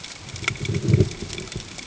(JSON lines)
{"label": "ambient", "recorder": "HydroMoth"}